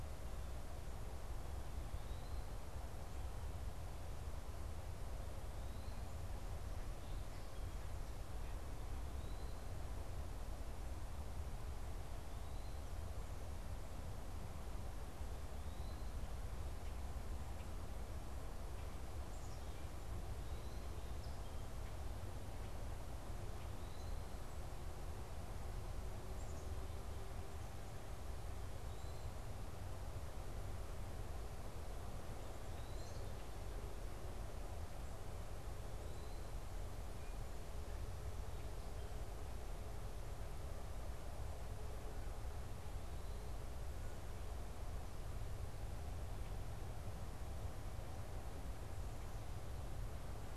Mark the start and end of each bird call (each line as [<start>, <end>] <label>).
[1.72, 9.92] Eastern Wood-Pewee (Contopus virens)
[15.52, 16.22] Eastern Wood-Pewee (Contopus virens)
[32.52, 33.32] Eastern Wood-Pewee (Contopus virens)